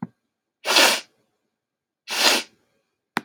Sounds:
Sniff